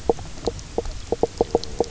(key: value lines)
label: biophony, knock croak
recorder: SoundTrap 300